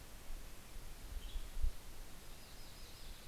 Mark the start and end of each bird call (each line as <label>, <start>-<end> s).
Western Tanager (Piranga ludoviciana), 0.8-2.1 s
Yellow-rumped Warbler (Setophaga coronata), 1.9-3.3 s
Red-breasted Nuthatch (Sitta canadensis), 2.3-3.3 s
Mountain Chickadee (Poecile gambeli), 2.5-3.3 s